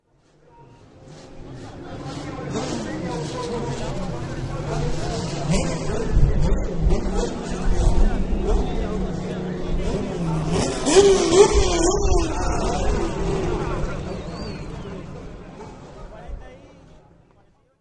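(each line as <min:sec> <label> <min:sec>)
0:01.0 Car engines revving. 0:16.5
0:01.1 People are talking in the background. 0:17.8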